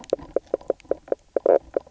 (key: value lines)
label: biophony, knock croak
recorder: SoundTrap 300